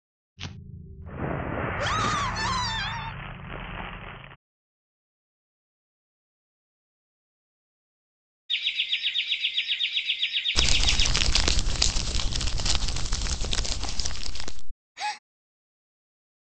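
At 0.4 seconds, fire can be heard. While that goes on, at 1.8 seconds, someone screams. Later, at 8.5 seconds, chirping is audible. Over it, at 10.6 seconds, you can hear crumpling. Next, at 15.0 seconds, someone gasps.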